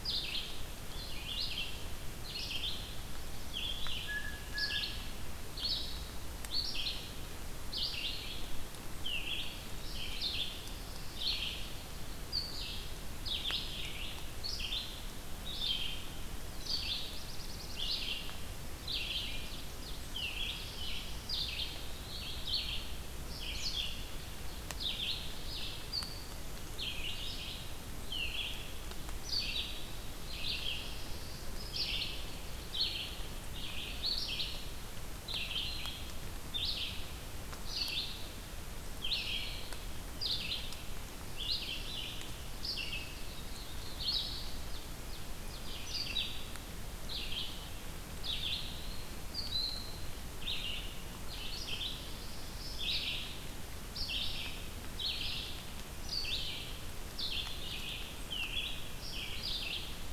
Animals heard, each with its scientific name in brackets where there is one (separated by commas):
Blue Jay (Cyanocitta cristata), Red-eyed Vireo (Vireo olivaceus), Ovenbird (Seiurus aurocapilla), Black-throated Blue Warbler (Setophaga caerulescens), Eastern Wood-Pewee (Contopus virens)